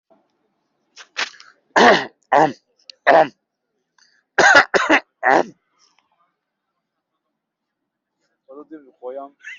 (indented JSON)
{
  "expert_labels": [
    {
      "quality": "good",
      "cough_type": "unknown",
      "dyspnea": false,
      "wheezing": false,
      "stridor": false,
      "choking": false,
      "congestion": false,
      "nothing": true,
      "diagnosis": "upper respiratory tract infection",
      "severity": "mild"
    }
  ],
  "age": 40,
  "gender": "male",
  "respiratory_condition": true,
  "fever_muscle_pain": true,
  "status": "COVID-19"
}